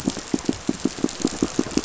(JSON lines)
{"label": "biophony, pulse", "recorder": "SoundTrap 500"}